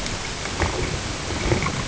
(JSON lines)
{"label": "ambient", "recorder": "HydroMoth"}